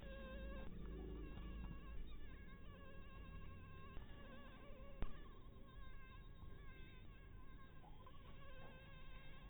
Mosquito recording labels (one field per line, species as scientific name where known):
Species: mosquito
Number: one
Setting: cup